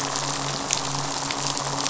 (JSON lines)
{"label": "biophony, midshipman", "recorder": "SoundTrap 500"}